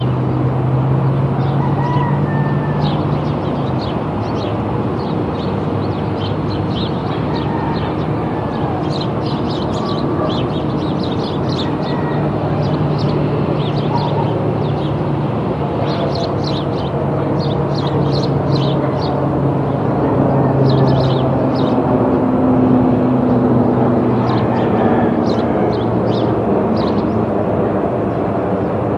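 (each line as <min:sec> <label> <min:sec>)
0:00.1 A car is driving by. 0:04.0
0:01.3 A bird chirps in the distance. 0:19.3
0:01.4 A rooster crows in the distance. 0:03.2
0:03.9 Constant street noise in the distance. 0:19.9
0:07.3 A rooster crowing in the distance. 0:09.0
0:11.3 A rooster crowing in the distance. 0:12.9
0:20.0 A rooster crowing in the distance. 0:21.5
0:20.0 An airplane flying past. 0:28.9
0:20.7 A bird chirps in the distance. 0:22.0
0:24.3 A rooster crowing in the distance. 0:25.9
0:24.5 A bird chirps in the distance. 0:27.4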